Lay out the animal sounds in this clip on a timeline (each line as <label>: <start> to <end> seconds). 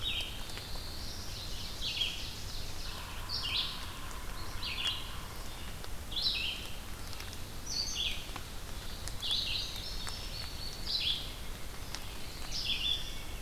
Red-eyed Vireo (Vireo olivaceus): 0.0 to 13.4 seconds
Black-throated Blue Warbler (Setophaga caerulescens): 0.2 to 1.5 seconds
Ovenbird (Seiurus aurocapilla): 0.8 to 3.0 seconds
Yellow-bellied Sapsucker (Sphyrapicus varius): 2.8 to 5.5 seconds
Indigo Bunting (Passerina cyanea): 9.2 to 11.0 seconds
Black-throated Blue Warbler (Setophaga caerulescens): 12.0 to 13.2 seconds